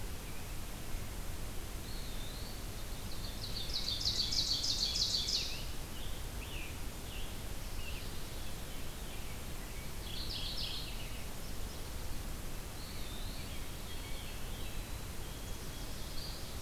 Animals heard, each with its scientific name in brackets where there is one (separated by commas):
Eastern Wood-Pewee (Contopus virens), Scarlet Tanager (Piranga olivacea), Veery (Catharus fuscescens), Black-capped Chickadee (Poecile atricapillus), Mourning Warbler (Geothlypis philadelphia), Ovenbird (Seiurus aurocapilla), White-throated Sparrow (Zonotrichia albicollis)